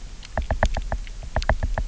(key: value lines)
label: biophony, knock
recorder: SoundTrap 300